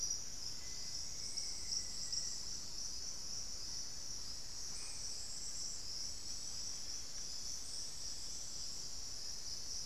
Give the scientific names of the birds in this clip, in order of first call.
Formicarius analis